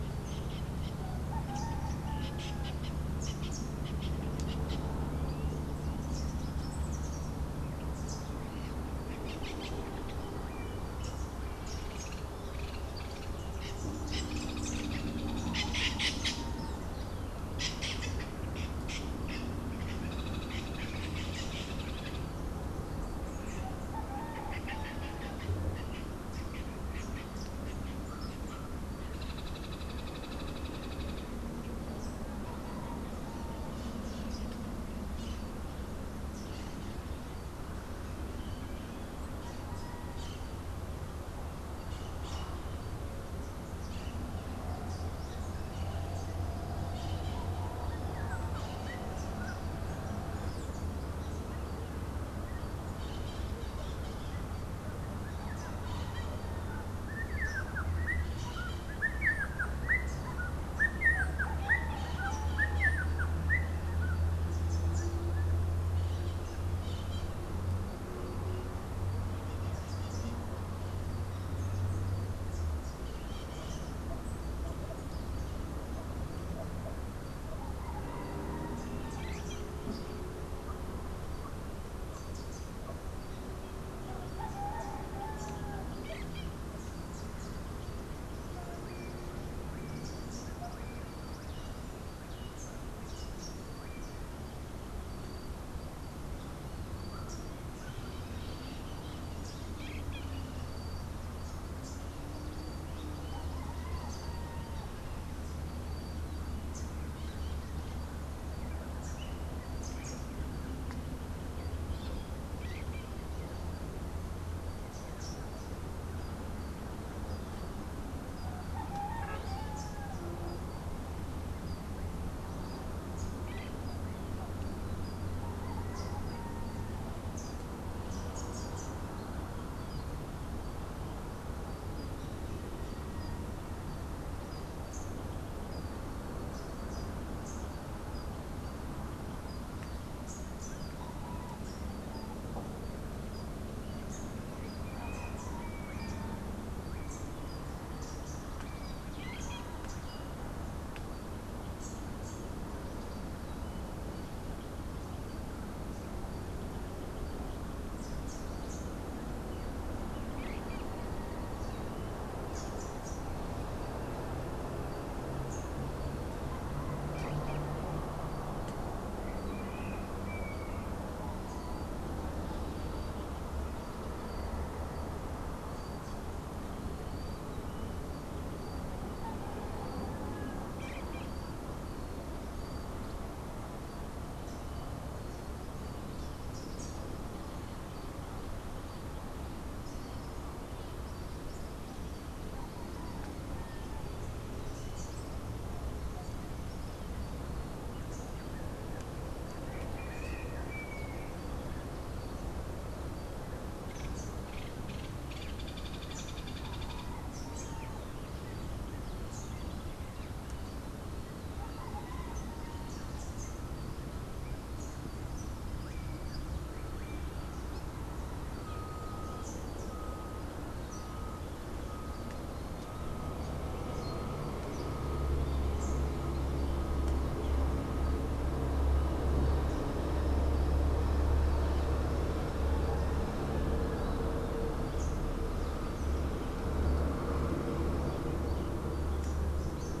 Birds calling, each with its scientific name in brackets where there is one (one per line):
Rufous-naped Wren (Campylorhynchus rufinucha)
Rufous-capped Warbler (Basileuterus rufifrons)
Melodious Blackbird (Dives dives)
White-crowned Parrot (Pionus senilis)
Hoffmann's Woodpecker (Melanerpes hoffmannii)
Crimson-fronted Parakeet (Psittacara finschi)